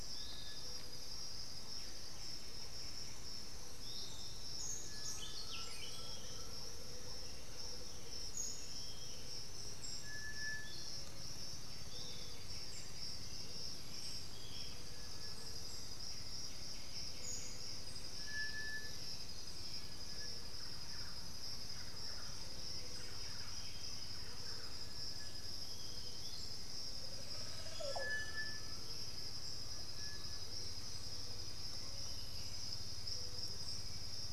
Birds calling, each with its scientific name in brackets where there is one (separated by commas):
unidentified bird, Thrush-like Wren (Campylorhynchus turdinus), White-winged Becard (Pachyramphus polychopterus), Piratic Flycatcher (Legatus leucophaius), Black-billed Thrush (Turdus ignobilis), Undulated Tinamou (Crypturellus undulatus), Olive Oropendola (Psarocolius bifasciatus), Buff-throated Saltator (Saltator maximus), Black-throated Antbird (Myrmophylax atrothorax), Great Antshrike (Taraba major)